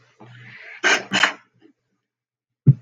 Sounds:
Sniff